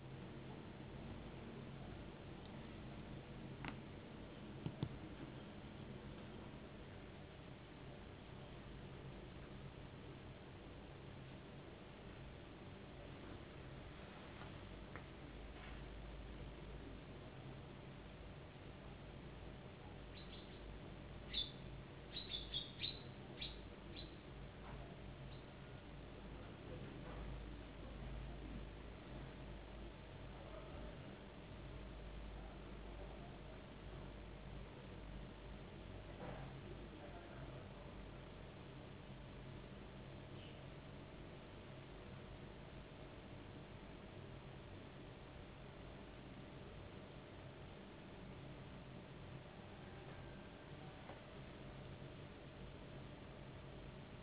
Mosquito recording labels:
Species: no mosquito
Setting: insect culture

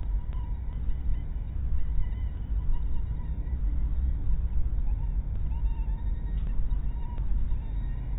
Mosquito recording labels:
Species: mosquito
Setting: cup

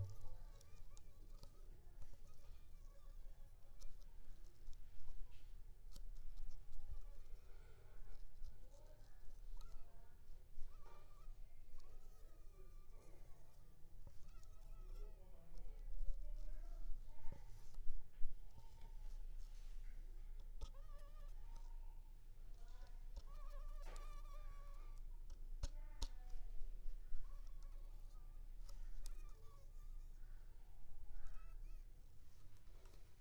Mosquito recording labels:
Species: Anopheles leesoni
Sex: female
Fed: unfed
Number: one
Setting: cup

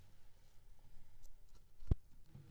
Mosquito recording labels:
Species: Anopheles coustani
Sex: female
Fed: unfed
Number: one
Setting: cup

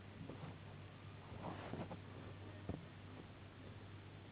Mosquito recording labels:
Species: Anopheles gambiae s.s.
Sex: female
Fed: unfed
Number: one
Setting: insect culture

